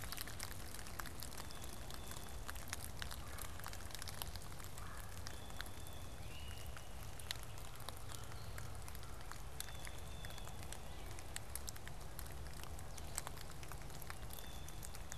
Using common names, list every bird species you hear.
Blue-headed Vireo, Blue Jay, Red-bellied Woodpecker, Great Crested Flycatcher